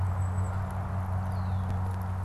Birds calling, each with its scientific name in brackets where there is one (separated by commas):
Red-winged Blackbird (Agelaius phoeniceus), Golden-crowned Kinglet (Regulus satrapa)